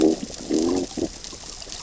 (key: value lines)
label: biophony, growl
recorder: SoundTrap 600 or HydroMoth